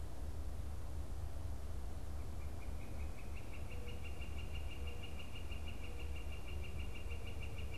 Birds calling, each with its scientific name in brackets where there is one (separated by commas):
Mourning Dove (Zenaida macroura), Northern Flicker (Colaptes auratus)